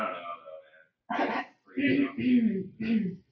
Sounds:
Throat clearing